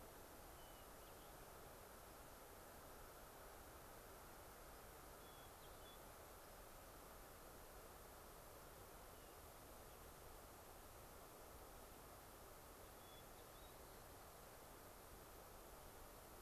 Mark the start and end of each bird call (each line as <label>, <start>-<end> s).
Hermit Thrush (Catharus guttatus), 0.5-1.3 s
Hermit Thrush (Catharus guttatus), 5.2-6.0 s
Hermit Thrush (Catharus guttatus), 9.1-9.3 s
Hermit Thrush (Catharus guttatus), 12.9-13.7 s